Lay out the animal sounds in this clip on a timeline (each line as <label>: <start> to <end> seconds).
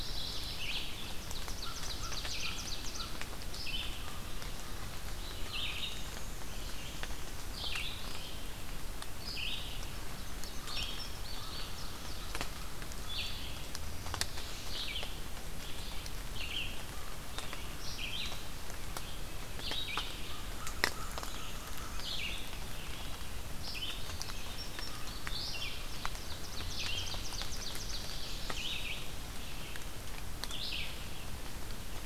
Mourning Warbler (Geothlypis philadelphia): 0.0 to 0.7 seconds
Red-eyed Vireo (Vireo olivaceus): 0.0 to 31.1 seconds
Ovenbird (Seiurus aurocapilla): 0.9 to 3.2 seconds
American Crow (Corvus brachyrhynchos): 1.5 to 5.8 seconds
Black-and-white Warbler (Mniotilta varia): 5.6 to 7.5 seconds
Indigo Bunting (Passerina cyanea): 10.0 to 12.5 seconds
American Crow (Corvus brachyrhynchos): 20.2 to 22.3 seconds
Black-and-white Warbler (Mniotilta varia): 20.7 to 22.3 seconds
Indigo Bunting (Passerina cyanea): 23.8 to 25.9 seconds
Ovenbird (Seiurus aurocapilla): 25.8 to 28.3 seconds